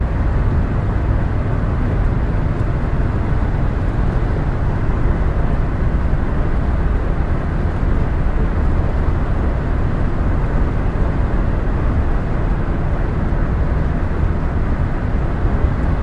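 Muffled rumbling sounds of a car driving. 0:00.0 - 0:16.0

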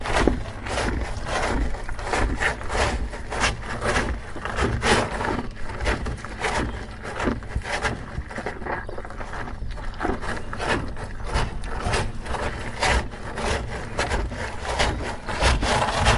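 A cow is eating. 0:00.1 - 0:08.5
A cow is eating. 0:10.7 - 0:16.2

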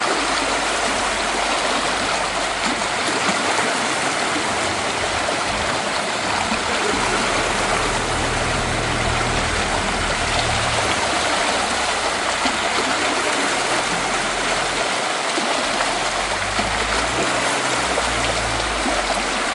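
Water splashing. 0:00.0 - 0:19.5
Someone is talking in the background. 0:06.7 - 0:07.8
A car engine starts. 0:07.6 - 0:11.4
Car driving sounds. 0:16.6 - 0:19.5

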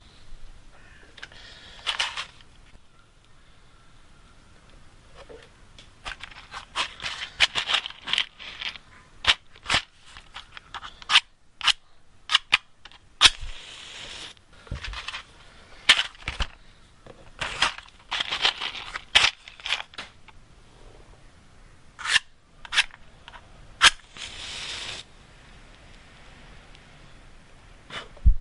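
A person is breathing deeply. 0:01.2 - 0:02.5
Rattling of matchsticks in a box. 0:01.8 - 0:02.3
Rattling of matchsticks in a box. 0:06.0 - 0:08.8
A person repeatedly strikes a matchstick against a matchbox. 0:09.2 - 0:09.9
Rattling of matchsticks in a box. 0:10.1 - 0:11.0
A person repeatedly strikes a matchstick against a matchbox. 0:11.0 - 0:13.3
A matchstick being ignited by rubbing it against a matchbox. 0:13.1 - 0:14.5
Rattling of matchsticks in a box. 0:14.7 - 0:16.5
Rattling of matchsticks in a box. 0:17.4 - 0:20.1
A person repeatedly strikes a matchstick against a matchbox. 0:21.9 - 0:24.0
A matchstick being ignited by rubbing it against a matchbox. 0:23.8 - 0:25.2
A person blows out a burning matchstick. 0:27.9 - 0:28.4

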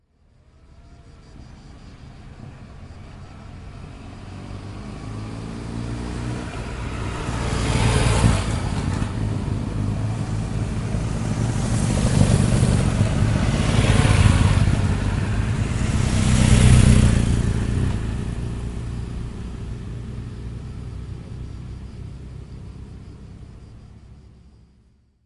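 A motorbike approaches, its sound gradually getting louder. 0:01.7 - 0:12.4
A motorbike approaches, peaking in volume in the middle before fading. 0:12.4 - 0:16.0
A motorbike approaches, gets louder, and then fades away as it moves away. 0:16.0 - 0:25.3

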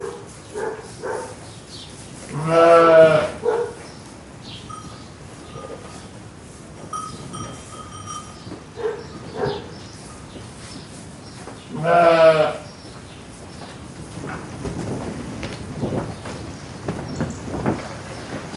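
A dog barks in the distance outdoors. 0:00.0 - 0:01.4
Outdoor ambience with birds chirping in the distance. 0:00.0 - 0:18.5
A sheep is baaing outdoors. 0:02.2 - 0:03.5
A dog barks in the distance outdoors. 0:02.5 - 0:03.9
Sheep bells ringing repeatedly outdoors. 0:04.6 - 0:06.1
Sheep bells ringing repeatedly outdoors. 0:06.7 - 0:08.5
A dog barks in the distance outdoors. 0:08.7 - 0:09.9
A sheep is baaing outdoors. 0:11.6 - 0:12.7
Footsteps on firm ground outdoors. 0:13.9 - 0:18.6

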